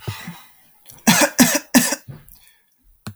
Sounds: Cough